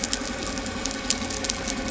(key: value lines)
label: anthrophony, boat engine
recorder: SoundTrap 300